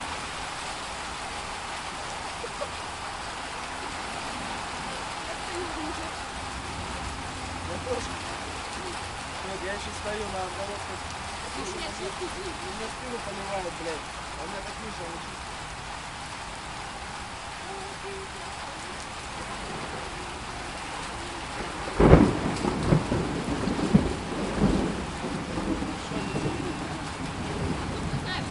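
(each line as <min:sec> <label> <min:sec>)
0:00.4 Steady rainfall with a soft, consistent patter and several people talking indoors with overlapping voices. 0:28.5
0:22.2 A distant thunderstorm rumbles and fades away. 0:28.5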